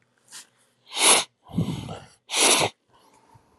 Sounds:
Sniff